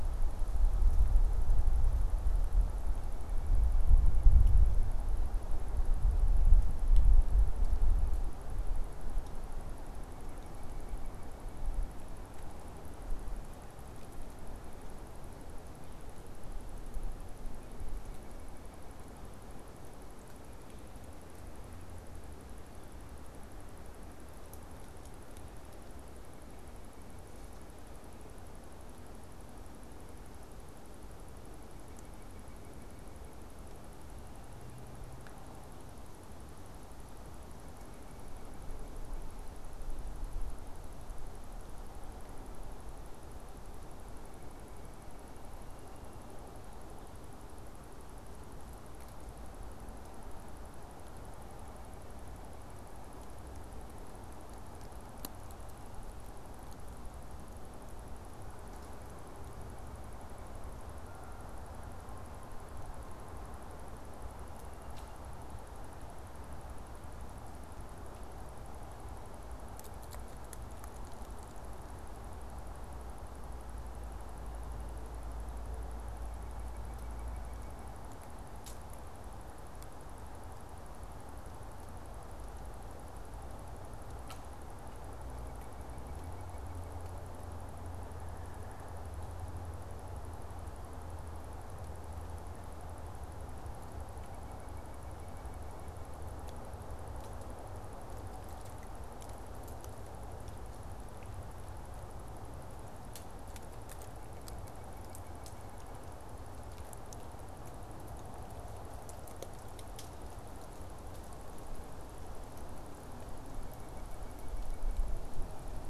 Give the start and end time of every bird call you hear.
[76.36, 77.96] White-breasted Nuthatch (Sitta carolinensis)
[85.26, 87.06] White-breasted Nuthatch (Sitta carolinensis)
[103.86, 106.16] White-breasted Nuthatch (Sitta carolinensis)
[113.26, 115.16] White-breasted Nuthatch (Sitta carolinensis)

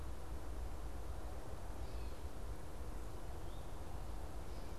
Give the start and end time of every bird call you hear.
[1.43, 2.53] Gray Catbird (Dumetella carolinensis)
[3.23, 3.83] Eastern Towhee (Pipilo erythrophthalmus)

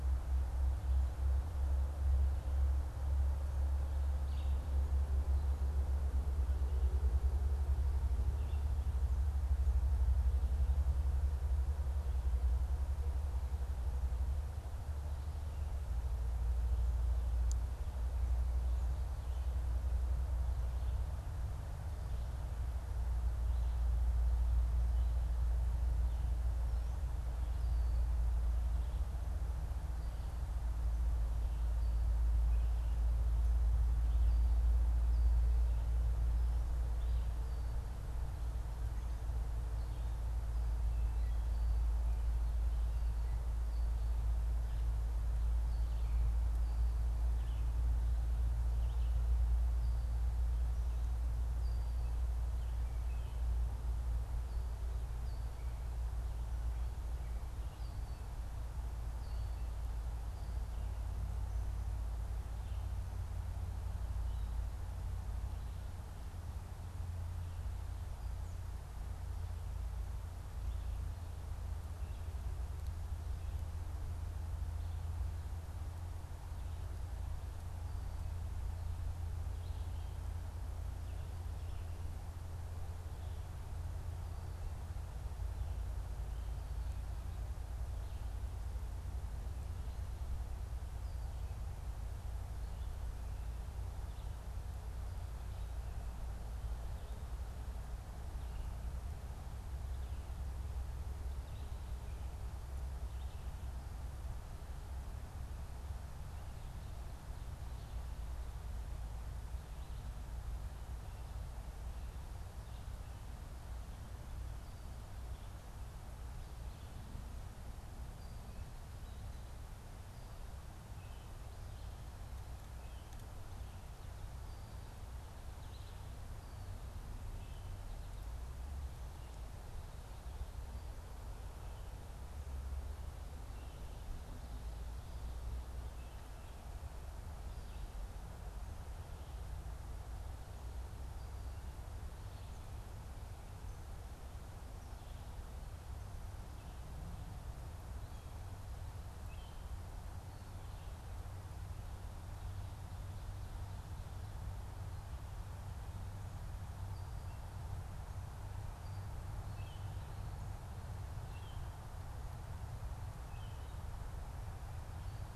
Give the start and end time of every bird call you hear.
[4.14, 4.64] Red-eyed Vireo (Vireo olivaceus)
[8.14, 8.74] Red-eyed Vireo (Vireo olivaceus)
[45.74, 47.74] Red-eyed Vireo (Vireo olivaceus)
[48.74, 49.24] Red-eyed Vireo (Vireo olivaceus)
[149.14, 149.74] Baltimore Oriole (Icterus galbula)
[159.44, 163.74] Baltimore Oriole (Icterus galbula)

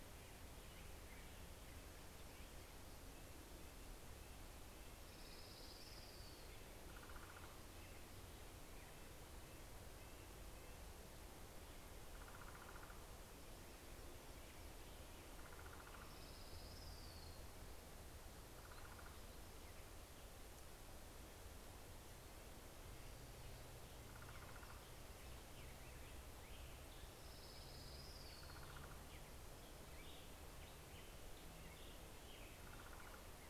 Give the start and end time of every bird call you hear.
[2.10, 5.00] Red-breasted Nuthatch (Sitta canadensis)
[4.10, 7.60] Orange-crowned Warbler (Leiothlypis celata)
[6.30, 31.70] Common Raven (Corvus corax)
[7.20, 11.30] Red-breasted Nuthatch (Sitta canadensis)
[15.40, 18.80] Orange-crowned Warbler (Leiothlypis celata)
[21.30, 25.00] Red-breasted Nuthatch (Sitta canadensis)
[25.00, 32.00] American Robin (Turdus migratorius)
[26.50, 29.20] Orange-crowned Warbler (Leiothlypis celata)

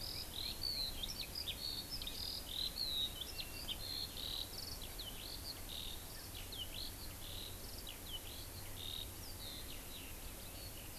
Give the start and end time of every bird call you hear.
[0.00, 10.98] Eurasian Skylark (Alauda arvensis)

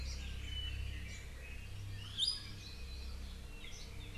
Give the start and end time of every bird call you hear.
[0.00, 0.20] Hawaii Amakihi (Chlorodrepanis virens)
[2.20, 2.40] Iiwi (Drepanis coccinea)

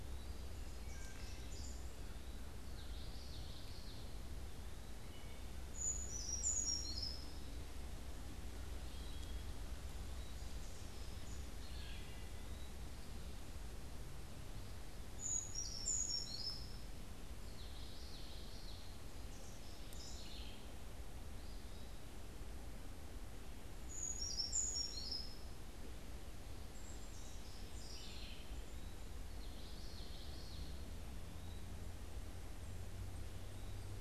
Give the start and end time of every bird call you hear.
[0.00, 1.90] Wood Thrush (Hylocichla mustelina)
[1.30, 2.10] House Wren (Troglodytes aedon)
[2.50, 4.20] Common Yellowthroat (Geothlypis trichas)
[4.80, 5.80] Wood Thrush (Hylocichla mustelina)
[5.50, 7.50] Brown Creeper (Certhia americana)
[11.40, 12.90] Wood Thrush (Hylocichla mustelina)
[14.70, 15.70] Eastern Wood-Pewee (Contopus virens)
[14.90, 17.00] Brown Creeper (Certhia americana)
[17.30, 18.90] Common Yellowthroat (Geothlypis trichas)
[19.20, 20.90] House Wren (Troglodytes aedon)
[21.30, 22.10] Eastern Wood-Pewee (Contopus virens)
[23.70, 25.60] Brown Creeper (Certhia americana)
[26.50, 29.00] House Wren (Troglodytes aedon)
[28.50, 29.30] Eastern Wood-Pewee (Contopus virens)
[29.20, 30.90] Common Yellowthroat (Geothlypis trichas)
[31.10, 34.00] Eastern Wood-Pewee (Contopus virens)

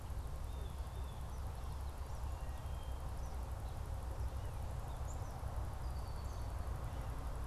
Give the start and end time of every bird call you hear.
[0.58, 0.98] Blue Jay (Cyanocitta cristata)
[1.18, 7.46] Eastern Kingbird (Tyrannus tyrannus)
[2.38, 3.08] Wood Thrush (Hylocichla mustelina)
[5.88, 6.78] Red-winged Blackbird (Agelaius phoeniceus)

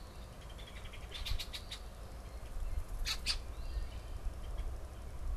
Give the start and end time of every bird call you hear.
[0.00, 4.17] Eastern Phoebe (Sayornis phoebe)
[0.00, 4.28] Red-winged Blackbird (Agelaius phoeniceus)

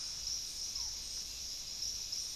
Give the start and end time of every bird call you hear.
[0.00, 2.36] Barred Forest-Falcon (Micrastur ruficollis)

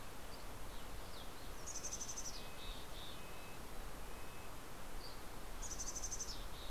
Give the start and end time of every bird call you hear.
[0.10, 0.90] Dusky Flycatcher (Empidonax oberholseri)
[1.40, 4.70] Red-breasted Nuthatch (Sitta canadensis)
[1.50, 3.30] Mountain Chickadee (Poecile gambeli)
[4.80, 5.80] Dusky Flycatcher (Empidonax oberholseri)
[5.50, 6.70] Mountain Chickadee (Poecile gambeli)

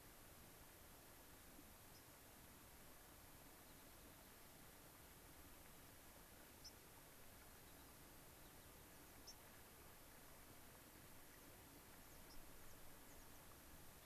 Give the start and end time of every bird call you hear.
[1.86, 2.06] White-crowned Sparrow (Zonotrichia leucophrys)
[3.36, 4.56] unidentified bird
[6.56, 6.76] White-crowned Sparrow (Zonotrichia leucophrys)
[7.46, 8.96] unidentified bird
[9.26, 9.36] White-crowned Sparrow (Zonotrichia leucophrys)
[11.26, 13.46] American Pipit (Anthus rubescens)
[12.26, 12.46] White-crowned Sparrow (Zonotrichia leucophrys)

